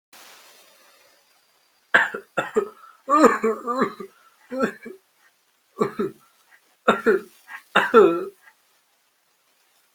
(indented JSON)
{
  "expert_labels": [
    {
      "quality": "ok",
      "cough_type": "dry",
      "dyspnea": false,
      "wheezing": false,
      "stridor": false,
      "choking": false,
      "congestion": false,
      "nothing": true,
      "diagnosis": "upper respiratory tract infection",
      "severity": "unknown"
    }
  ]
}